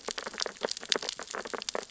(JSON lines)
{"label": "biophony, sea urchins (Echinidae)", "recorder": "SoundTrap 600 or HydroMoth"}